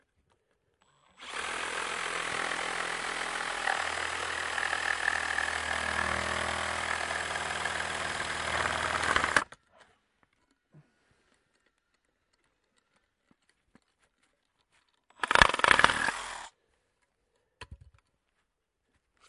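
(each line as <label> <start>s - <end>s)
The steady sound of an electric saw cutting. 1.2s - 9.5s
An electric saw starts briefly. 15.2s - 16.6s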